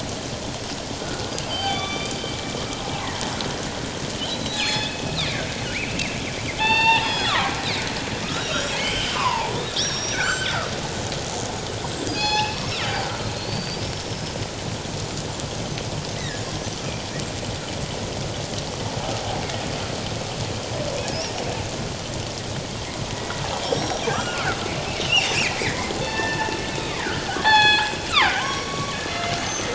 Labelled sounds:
1.0	2.1	killer whale, northern resident, G clan, 1.1 to 4.9 kHz
4.3	5.4	killer whale, northern resident, G clan, 0.81 to 5.2 kHz
5.7	7.5	killer whale, northern resident, G clan, 0.78 to 7.7 kHz
8.2	10.5	killer whale, northern resident, G clan, 0.78 to 6.2 kHz
12.1	12.9	killer whale, northern resident, G clan, 0.78 to 6.9 kHz
13.4	14.4	killer whale, northern resident, G clan, 4.2 to 5.4 kHz
16.2	16.8	killer whale, northern resident, G clan, 1.6 to 5.9 kHz
23.1	24.6	killer whale, northern resident, G clan, 1.1 to 5.7 kHz
25.6	29.7	killer whale, northern resident, G clan, 0.78 to 7.9 kHz

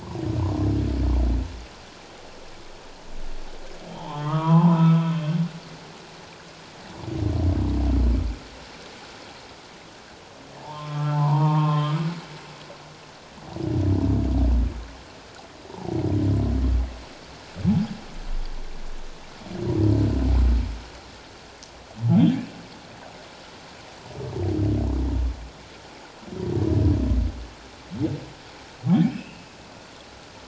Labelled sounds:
3.9	5.1	humpback whale, 0.78 to 3.4 kHz
10.6	12.0	humpback whale, 0.78 to 3.5 kHz
15.7	15.9	humpback whale, 0.78 to 1.0 kHz
29.1	29.4	humpback whale, 2.5 to 2.9 kHz

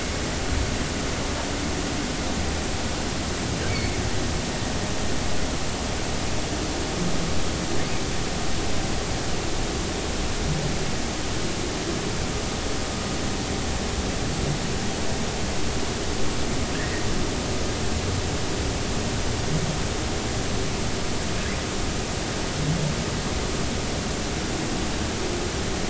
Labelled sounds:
3.7	3.9	humpback whale, 2.0 to 2.3 kHz
16.7	17.0	humpback whale, 1.5 to 1.9 kHz

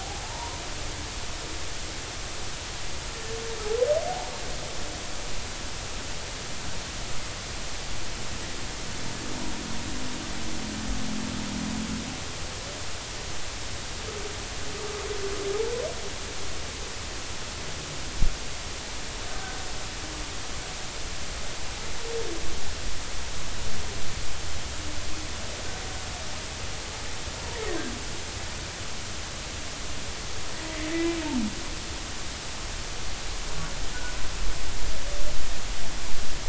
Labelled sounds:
0.0	0.6	humpback whale, 0.80 to 1.1 kHz

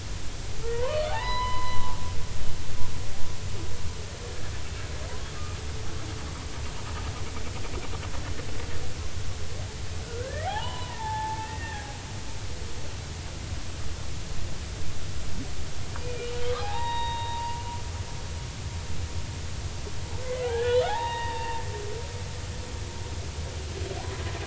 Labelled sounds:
0.7	2.0	humpback whale, 0.80 to 5.1 kHz
10.0	12.0	humpback whale, 0.80 to 3.1 kHz
16.0	17.6	humpback whale, 0.80 to 3.8 kHz
20.3	21.6	humpback whale, 0.80 to 3.9 kHz

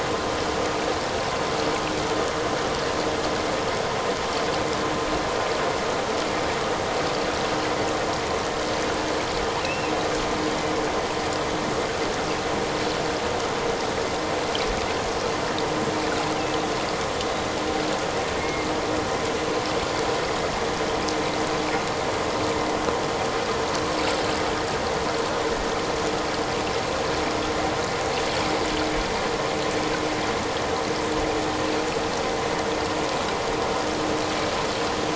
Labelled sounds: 9.6	9.9	killer whale, offshore, 2.4 to 2.9 kHz
18.4	18.7	killer whale, offshore, 2.1 to 2.2 kHz

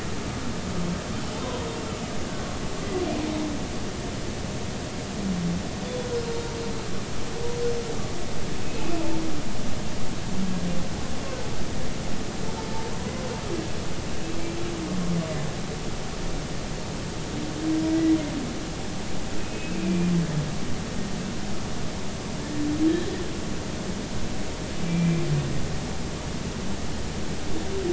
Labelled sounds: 8.6	9.0	humpback whale, 2.5 to 2.7 kHz
19.4	20.1	humpback whale, 2.3 to 2.7 kHz
24.9	25.2	humpback whale, 2.3 to 2.5 kHz

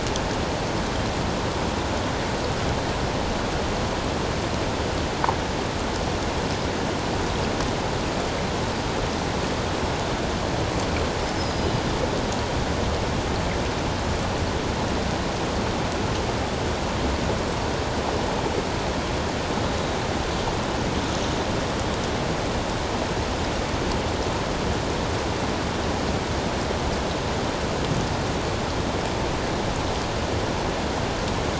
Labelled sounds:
11.4	11.7	Pacific white-sided dolphin, 4.9 to 5.3 kHz

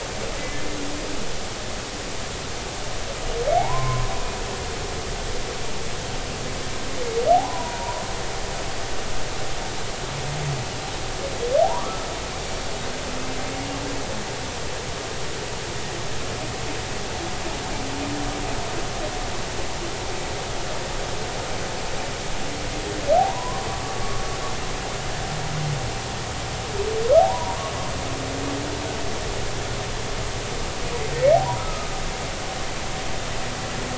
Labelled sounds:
0.4	0.7	humpback whale, 2.0 to 2.1 kHz
3.6	4.1	humpback whale, 0.80 to 1.1 kHz
7.3	8.0	humpback whale, 0.80 to 1.1 kHz
11.6	12.1	humpback whale, 0.80 to 1.4 kHz
23.2	23.6	humpback whale, 0.80 to 1.1 kHz
23.9	24.2	humpback whale, 1.1 to 1.2 kHz
27.2	27.6	humpback whale, 0.80 to 1.1 kHz
31.6	31.9	humpback whale, 1.2 to 1.4 kHz

